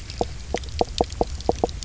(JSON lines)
{"label": "biophony, knock croak", "recorder": "SoundTrap 300"}